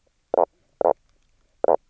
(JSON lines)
{"label": "biophony, knock croak", "recorder": "SoundTrap 300"}